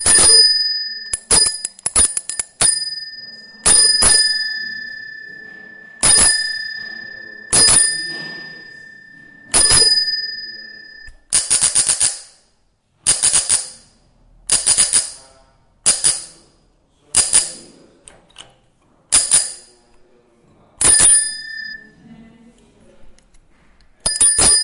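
A bicycle bell rings multiple times in an unsteady rhythm and fades away at the end. 0:00.0 - 0:06.0
A bicycle bell rings three times in a steady rhythm. 0:06.0 - 0:11.3
A bicycle bell rings multiple times in quick succession. 0:11.3 - 0:12.3
A bicycle bell rings twice in quick succession. 0:13.1 - 0:13.8
A bicycle bell rings twice in quick succession. 0:14.5 - 0:15.4
A bicycle bell rings once. 0:15.8 - 0:16.4
A bicycle bell rings once. 0:17.1 - 0:17.8
A bell handle is moved and snaps back to its initial position without ringing. 0:18.1 - 0:18.5
A bicycle bell rings once. 0:19.1 - 0:19.7
A bicycle bell rings once and fades away. 0:20.8 - 0:21.9
A person is speaking indistinctly in the distance. 0:22.0 - 0:23.3
A bicycle bell ringing. 0:24.0 - 0:24.6

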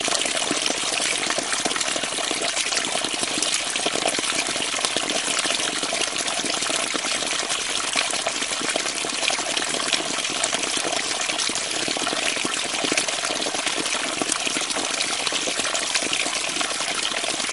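Water flowing in a stream. 0:00.0 - 0:17.5

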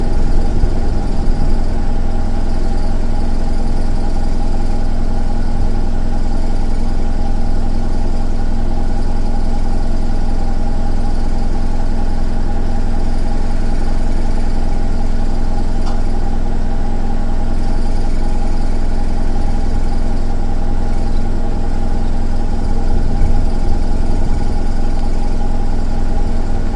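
A car engine idles steadily as the vehicle travels outdoors, producing a consistent humming sound. 0:00.0 - 0:26.8

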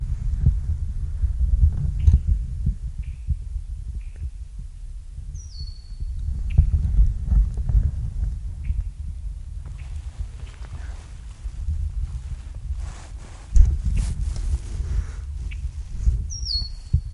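Rustling noise of a microphone against clothing. 0:00.0 - 0:17.1
A bird calls rhythmically in the distance. 0:01.9 - 0:04.5
A bird calls shortly at a moderate volume in the distance. 0:05.1 - 0:05.9
A bird calls rhythmically in the distance. 0:08.5 - 0:10.3
A faint bird call in the distance. 0:10.6 - 0:11.2
A bird calls shortly at a moderate volume in the distance. 0:16.2 - 0:17.1

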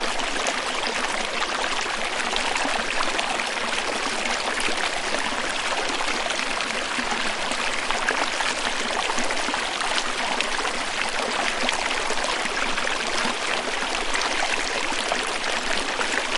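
Water splashes continuously in a steady rhythm. 0:00.0 - 0:16.4

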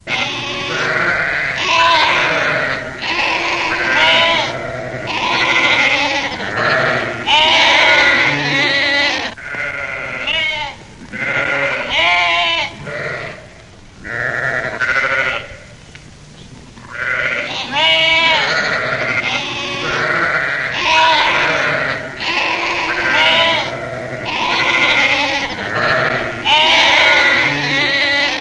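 A herd of sheep and goats bleating. 0:00.0 - 0:15.8
A herd of sheep and goats bleating. 0:16.7 - 0:28.4

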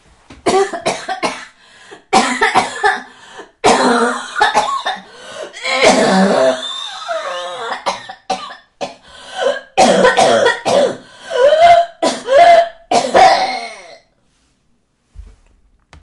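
A woman coughs strongly. 0:00.3 - 0:03.5
A woman coughs very strongly. 0:03.6 - 0:14.0

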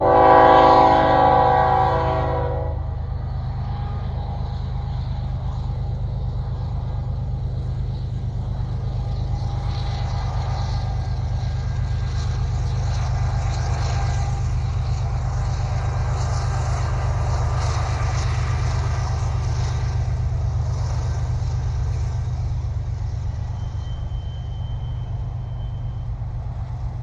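A train horn sounds loudly, rising and gradually fading. 0:00.0 - 0:03.8
Mechanical whirring and humming gradually increase. 0:04.2 - 0:21.7
Mechanical whirring and humming gradually fading into the background. 0:21.7 - 0:27.0

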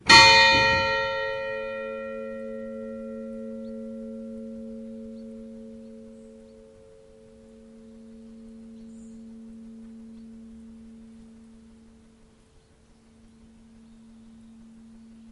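A church bell rings once and the sound gradually fades. 0:00.0 - 0:07.4
The ringing of a church bell fading away. 0:07.4 - 0:15.3

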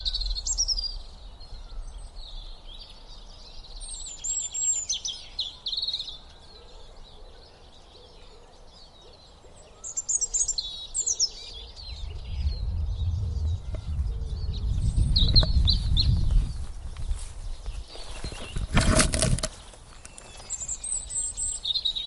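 Birds singing with small pauses in between. 0:00.0 - 0:22.1
An echoing sound of a microphone contacting an object gradually increases. 0:11.9 - 0:16.7
A loud cracking sound. 0:18.6 - 0:19.5

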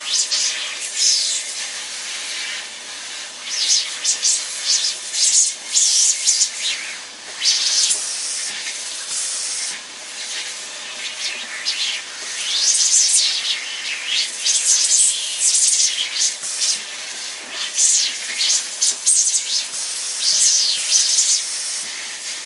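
A vacuum cleaner is running. 0:00.0 - 0:22.4

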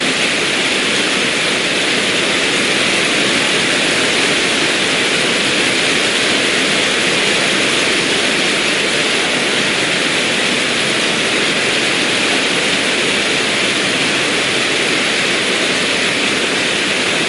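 Heavy rain is falling. 0:00.0 - 0:17.3

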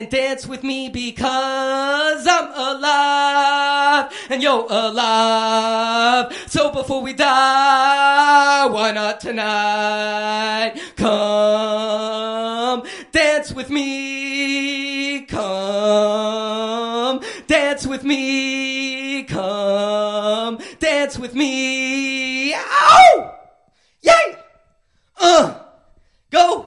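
A person is singing loudly. 0:00.0 - 0:22.8
Person screaming with short pauses. 0:22.7 - 0:26.7

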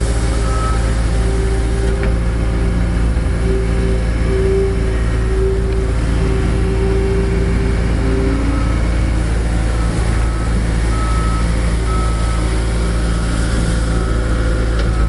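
Construction site noises and machinery sounds. 0:00.2 - 0:15.1
A siren alarm sounds in the background. 0:10.6 - 0:13.8

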